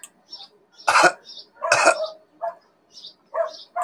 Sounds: Cough